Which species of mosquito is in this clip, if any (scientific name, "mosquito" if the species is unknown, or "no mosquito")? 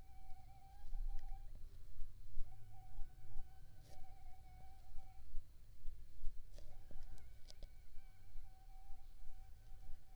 Aedes aegypti